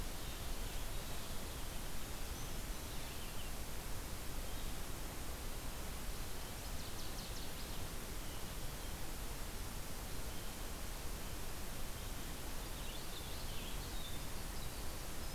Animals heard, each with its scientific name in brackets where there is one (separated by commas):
Blue-headed Vireo (Vireo solitarius), Brown Creeper (Certhia americana), Winter Wren (Troglodytes hiemalis), Northern Waterthrush (Parkesia noveboracensis)